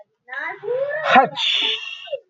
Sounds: Sneeze